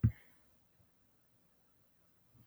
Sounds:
Cough